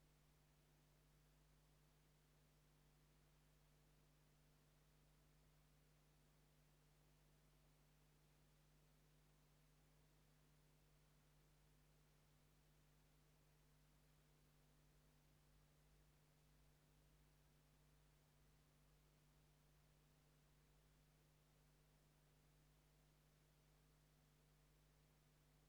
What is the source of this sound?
Leptophyes laticauda, an orthopteran